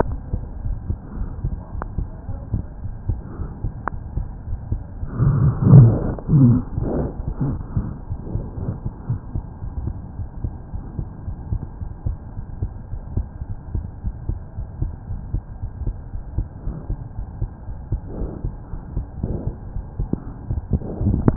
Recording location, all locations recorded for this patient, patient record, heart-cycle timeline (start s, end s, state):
aortic valve (AV)
aortic valve (AV)+pulmonary valve (PV)+tricuspid valve (TV)+mitral valve (MV)
#Age: Child
#Sex: Male
#Height: 82.0 cm
#Weight: 9.59 kg
#Pregnancy status: False
#Murmur: Absent
#Murmur locations: nan
#Most audible location: nan
#Systolic murmur timing: nan
#Systolic murmur shape: nan
#Systolic murmur grading: nan
#Systolic murmur pitch: nan
#Systolic murmur quality: nan
#Diastolic murmur timing: nan
#Diastolic murmur shape: nan
#Diastolic murmur grading: nan
#Diastolic murmur pitch: nan
#Diastolic murmur quality: nan
#Outcome: Abnormal
#Campaign: 2015 screening campaign
0.00	10.16	unannotated
10.16	10.28	S1
10.28	10.38	systole
10.38	10.52	S2
10.52	10.72	diastole
10.72	10.82	S1
10.82	10.94	systole
10.94	11.06	S2
11.06	11.26	diastole
11.26	11.42	S1
11.42	11.50	systole
11.50	11.60	S2
11.60	11.80	diastole
11.80	11.90	S1
11.90	12.04	systole
12.04	12.16	S2
12.16	12.36	diastole
12.36	12.46	S1
12.46	12.60	systole
12.60	12.72	S2
12.72	12.92	diastole
12.92	13.04	S1
13.04	13.14	systole
13.14	13.28	S2
13.28	13.46	diastole
13.46	13.58	S1
13.58	13.72	systole
13.72	13.86	S2
13.86	14.03	diastole
14.03	14.14	S1
14.14	14.26	systole
14.26	14.40	S2
14.40	14.56	diastole
14.56	14.68	S1
14.68	14.80	systole
14.80	14.90	S2
14.90	15.09	diastole
15.09	15.20	S1
15.20	15.32	systole
15.32	15.42	S2
15.42	15.62	diastole
15.62	15.70	S1
15.70	15.82	systole
15.82	15.94	S2
15.94	16.13	diastole
16.13	16.24	S1
16.24	16.32	systole
16.32	16.46	S2
16.46	16.65	diastole
16.65	16.78	S1
16.78	16.88	systole
16.88	17.00	S2
17.00	17.16	diastole
17.16	17.26	S1
17.26	17.40	systole
17.40	17.50	S2
17.50	17.67	diastole
17.67	17.77	S1
17.77	21.36	unannotated